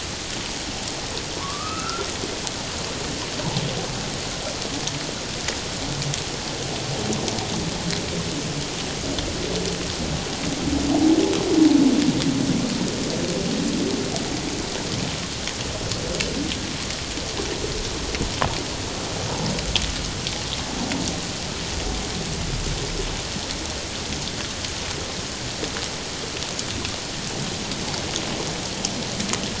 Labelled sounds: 1.3	2.1	humpback whale, 0.91 to 2.8 kHz

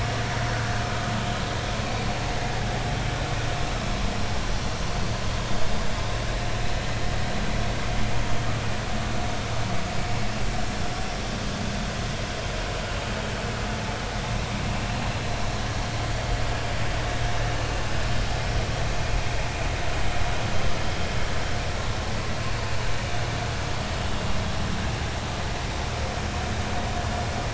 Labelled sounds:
15.2	15.4	vessel noise, 3.9 to 4.2 kHz

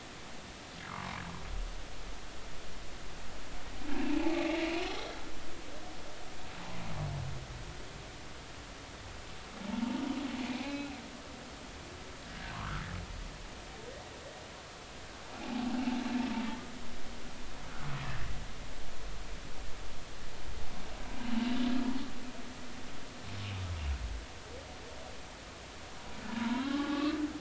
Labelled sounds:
0.9	1.1	humpback whale, 0.93 to 1.5 kHz
4.1	4.6	humpback whale, 0.80 to 2.3 kHz
10.4	11.0	humpback whale, 2.2 to 4.1 kHz
12.3	12.8	humpback whale, 0.96 to 1.7 kHz
15.4	15.7	humpback whale, 0.80 to 0.93 kHz
26.3	27.2	humpback whale, 0.80 to 2.7 kHz

